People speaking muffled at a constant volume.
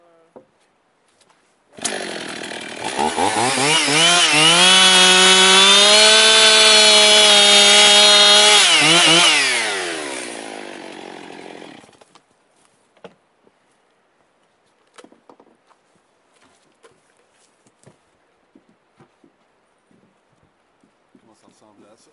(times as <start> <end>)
21.0 22.1